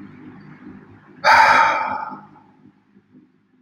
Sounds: Sigh